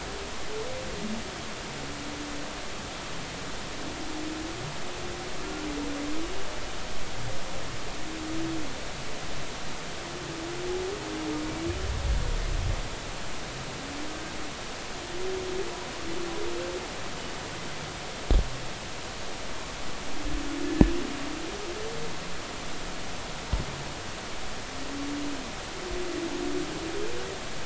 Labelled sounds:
20.6	20.9	humpback whale, 1.7 to 1.8 kHz

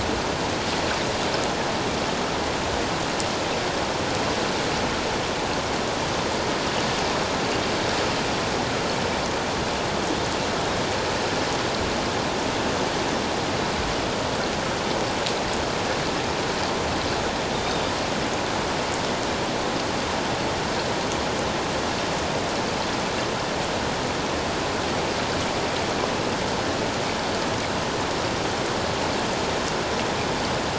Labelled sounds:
17.5	17.8	Pacific white-sided dolphin, 3.5 to 3.8 kHz

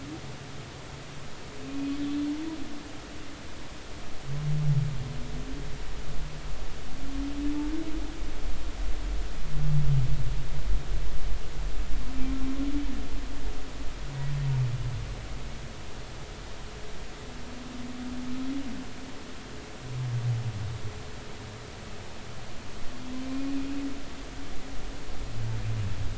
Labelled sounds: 2.0	2.3	humpback whale, 3.4 to 3.5 kHz
23.3	23.5	humpback whale, 2.3 to 2.5 kHz

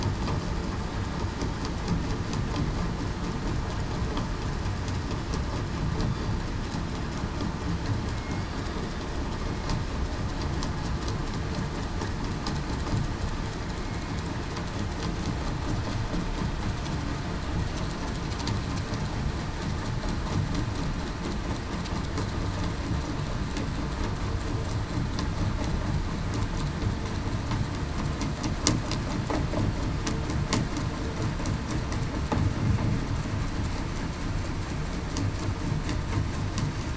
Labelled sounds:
8.1	8.5	killer whale, southern resident, 2.1 to 2.2 kHz

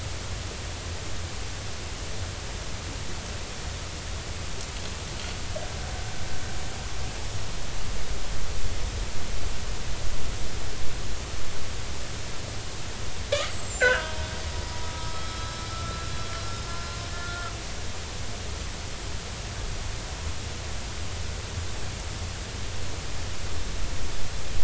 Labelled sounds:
13.5	14.3	killer whale, northern resident, G clan, GI subclan, I11 pod, call N25, 0.90 to 7.7 kHz
14.9	17.5	killer whale, northern resident, G clan, GI subclan, I11 pod, call N25, 1.2 to 5.5 kHz

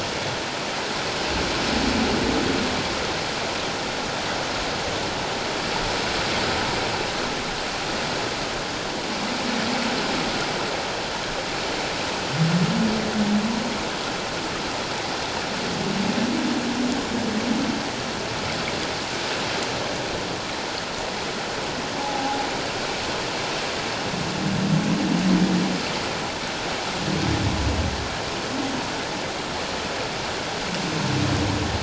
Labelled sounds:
22.0	22.4	humpback whale, 0.78 to 1.0 kHz

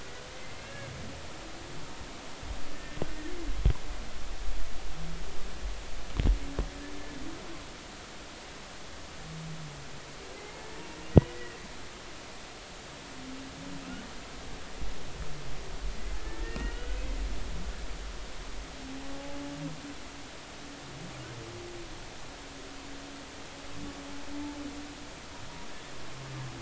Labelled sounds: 0.5	0.9	humpback whale, 1.6 to 2.8 kHz
2.7	3.4	humpback whale, 1.7 to 1.9 kHz
10.3	10.6	humpback whale, 2.0 to 2.2 kHz
11.3	11.6	humpback whale, 1.8 to 2.0 kHz
16.2	17.0	humpback whale, 1.3 to 3.0 kHz
19.1	19.4	humpback whale, 0.80 to 0.90 kHz

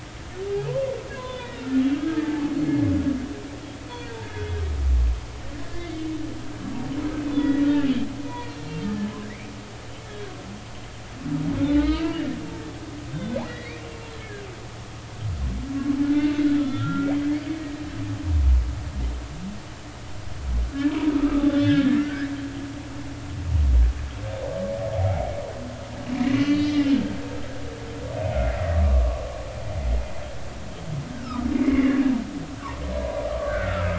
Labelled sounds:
0.7	1.6	humpback whale, 0.86 to 3.6 kHz
1.9	2.5	humpback whale, 0.80 to 1.7 kHz
5.5	5.9	humpback whale, 1.7 to 1.9 kHz
7.3	7.9	humpback whale, 1.3 to 3.6 kHz
8.3	9.1	humpback whale, 1.7 to 4.4 kHz
10.0	10.3	humpback whale, 1.4 to 1.8 kHz
11.7	14.5	humpback whale, 1.2 to 4.9 kHz
16.0	17.5	humpback whale, 1.2 to 3.6 kHz
21.2	22.3	humpback whale, 1.1 to 3.8 kHz
26.2	26.9	humpback whale, 1.9 to 4.5 kHz
28.4	29.2	humpback whale, 0.96 to 2.2 kHz
31.1	32.0	humpback whale, 0.93 to 2.3 kHz
33.0	33.9	humpback whale, 0.93 to 1.6 kHz

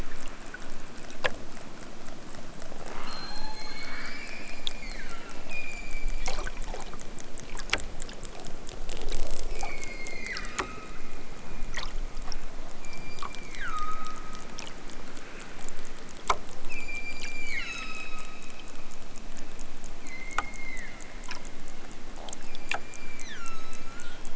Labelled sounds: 2.8	7.2	killer whale, southern Alaska resident, 0.46 to 8.0 kHz
9.5	11.0	killer whale, southern Alaska resident, 0.92 to 7.7 kHz
12.7	14.6	killer whale, southern Alaska resident, 0.92 to 7.5 kHz
16.7	18.7	killer whale, southern Alaska resident, 0.96 to 8.0 kHz
19.9	21.6	killer whale, southern Alaska resident, 0.73 to 6.6 kHz
22.3	24.3	killer whale, southern Alaska resident, 0.87 to 8.0 kHz

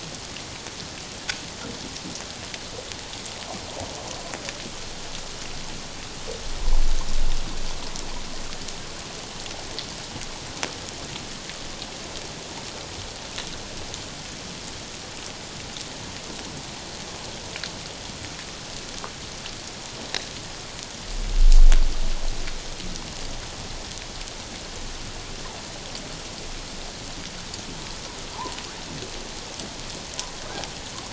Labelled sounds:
28.3	28.6	humpback whale, 0.81 to 1.2 kHz

